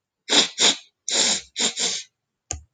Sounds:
Sniff